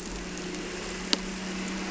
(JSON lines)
{"label": "anthrophony, boat engine", "recorder": "SoundTrap 300"}